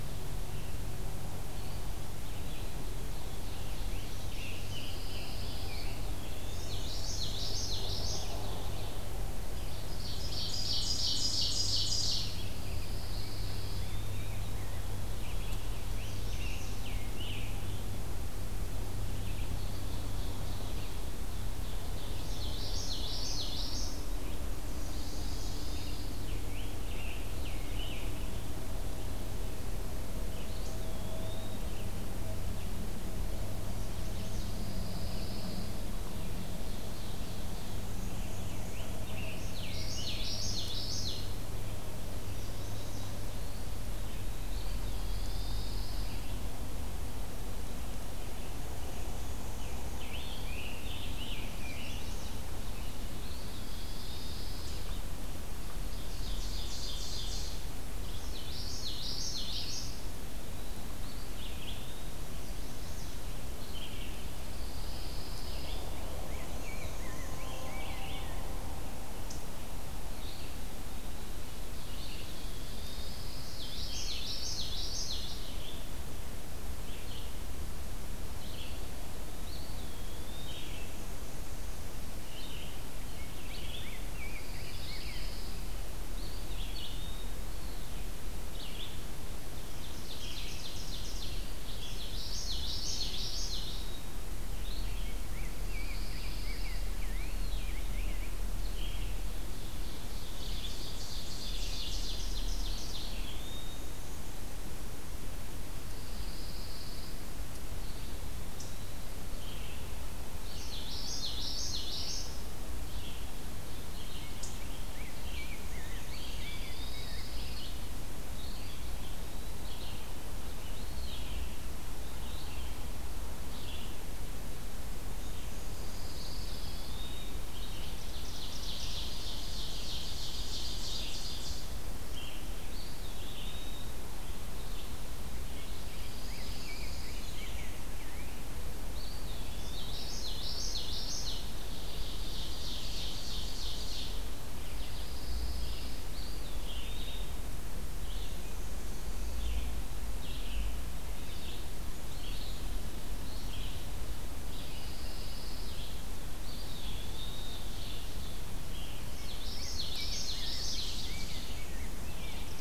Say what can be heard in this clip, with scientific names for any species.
Vireo olivaceus, Contopus virens, Seiurus aurocapilla, Piranga olivacea, Setophaga pinus, Geothlypis trichas, Pheucticus ludovicianus, Setophaga pensylvanica, Mniotilta varia